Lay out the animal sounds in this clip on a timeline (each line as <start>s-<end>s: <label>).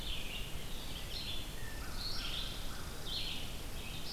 0.0s-4.1s: Red-eyed Vireo (Vireo olivaceus)
1.5s-4.1s: Red Squirrel (Tamiasciurus hudsonicus)
1.5s-3.3s: American Crow (Corvus brachyrhynchos)